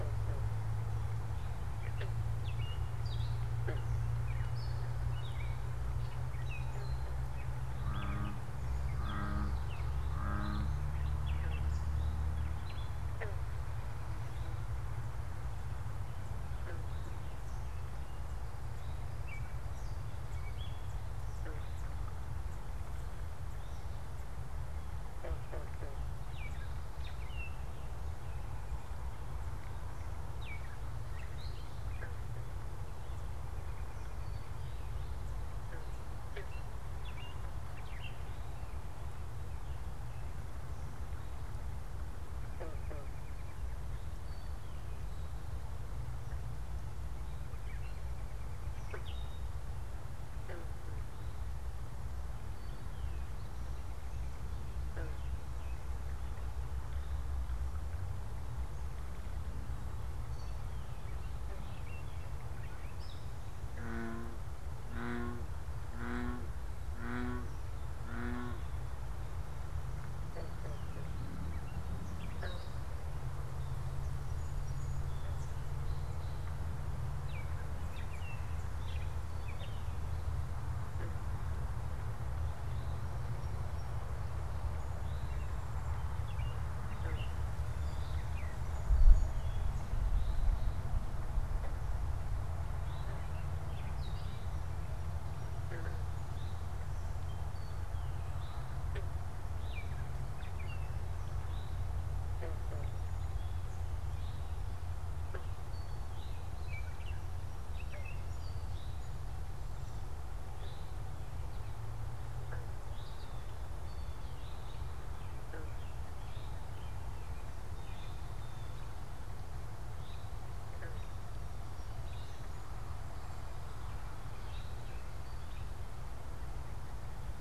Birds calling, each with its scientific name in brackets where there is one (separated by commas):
Song Sparrow (Melospiza melodia), Blue Jay (Cyanocitta cristata), American Robin (Turdus migratorius), Gray Catbird (Dumetella carolinensis), Eastern Towhee (Pipilo erythrophthalmus)